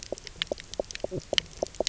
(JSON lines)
{"label": "biophony, knock croak", "recorder": "SoundTrap 300"}